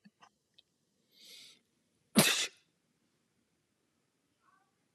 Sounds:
Sneeze